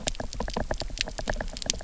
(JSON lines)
{"label": "biophony, knock", "recorder": "SoundTrap 300"}